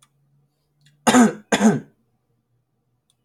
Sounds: Throat clearing